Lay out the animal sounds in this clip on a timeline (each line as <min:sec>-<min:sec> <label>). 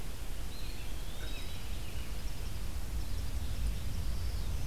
0:00.3-0:01.9 Eastern Wood-Pewee (Contopus virens)
0:01.1-0:04.3 Eastern Kingbird (Tyrannus tyrannus)
0:04.0-0:04.7 Black-throated Green Warbler (Setophaga virens)